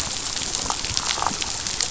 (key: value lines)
label: biophony, damselfish
recorder: SoundTrap 500